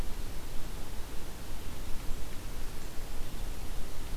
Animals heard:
forest ambience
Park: Acadia National Park